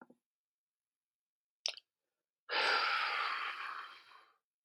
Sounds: Sigh